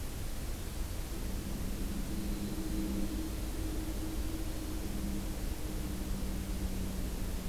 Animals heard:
Winter Wren (Troglodytes hiemalis)

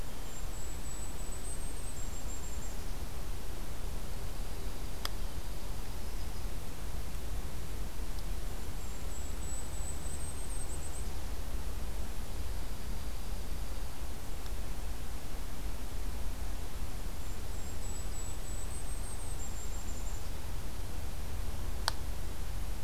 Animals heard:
Yellow-rumped Warbler (Setophaga coronata)
Golden-crowned Kinglet (Regulus satrapa)
Dark-eyed Junco (Junco hyemalis)

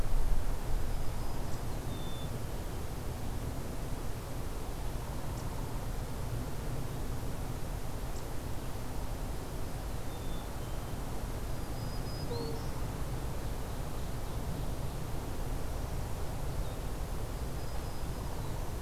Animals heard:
Ovenbird (Seiurus aurocapilla)
Black-capped Chickadee (Poecile atricapillus)
Black-throated Green Warbler (Setophaga virens)

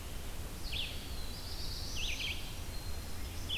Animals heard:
Red-eyed Vireo (Vireo olivaceus)
Black-throated Blue Warbler (Setophaga caerulescens)

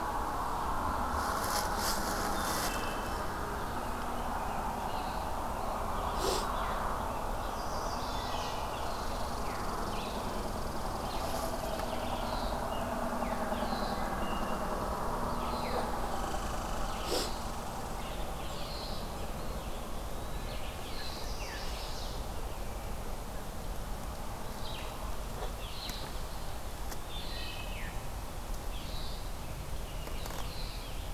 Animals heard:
American Robin (Turdus migratorius)
Eastern Wood-Pewee (Contopus virens)
Red-eyed Vireo (Vireo olivaceus)
Red Squirrel (Tamiasciurus hudsonicus)
Wood Thrush (Hylocichla mustelina)
Chestnut-sided Warbler (Setophaga pensylvanica)

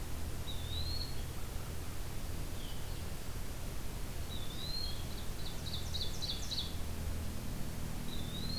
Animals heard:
American Crow (Corvus brachyrhynchos)
Ovenbird (Seiurus aurocapilla)
Blue-headed Vireo (Vireo solitarius)
Eastern Wood-Pewee (Contopus virens)

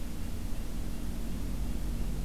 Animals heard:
Red-breasted Nuthatch (Sitta canadensis)

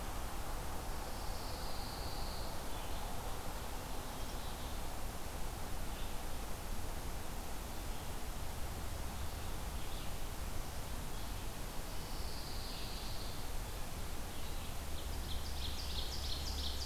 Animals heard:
Pine Warbler (Setophaga pinus)
Red-eyed Vireo (Vireo olivaceus)
Ovenbird (Seiurus aurocapilla)

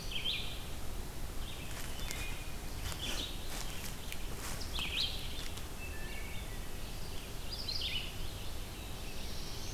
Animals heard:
Wood Thrush (Hylocichla mustelina)
Red-eyed Vireo (Vireo olivaceus)
Black-throated Blue Warbler (Setophaga caerulescens)

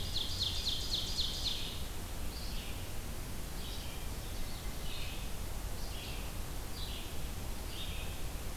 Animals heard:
Red-eyed Vireo (Vireo olivaceus)
Ovenbird (Seiurus aurocapilla)

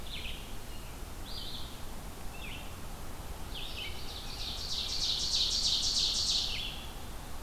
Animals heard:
Ovenbird (Seiurus aurocapilla)
Red-eyed Vireo (Vireo olivaceus)
American Robin (Turdus migratorius)

